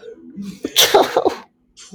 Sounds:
Sneeze